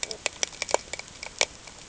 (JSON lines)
{"label": "ambient", "recorder": "HydroMoth"}